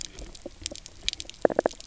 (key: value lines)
label: biophony, knock croak
recorder: SoundTrap 300